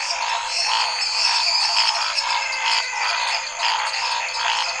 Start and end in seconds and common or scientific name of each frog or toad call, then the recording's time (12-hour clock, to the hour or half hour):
0.0	4.8	Chaco tree frog
0.0	4.8	lesser tree frog
0.0	4.8	Cuyaba dwarf frog
0.0	4.8	Scinax fuscovarius
0.4	2.3	Elachistocleis matogrosso
1.9	4.8	menwig frog
~9pm